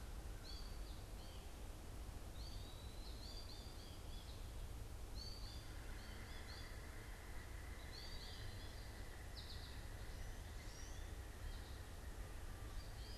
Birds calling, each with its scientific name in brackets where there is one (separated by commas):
American Goldfinch (Spinus tristis), Eastern Wood-Pewee (Contopus virens), Pileated Woodpecker (Dryocopus pileatus)